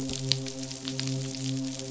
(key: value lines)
label: biophony, midshipman
recorder: SoundTrap 500